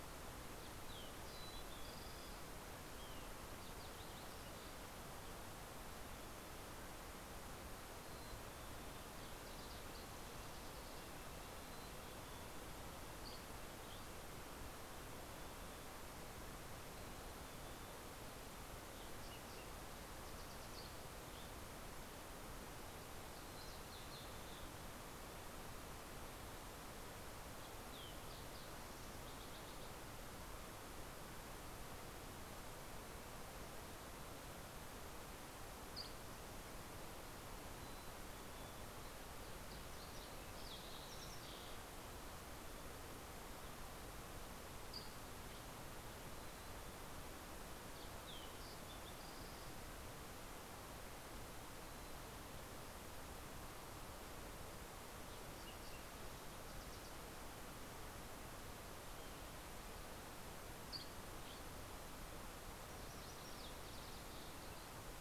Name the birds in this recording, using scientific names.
Passerella iliaca, Poecile gambeli, Sitta canadensis, Empidonax oberholseri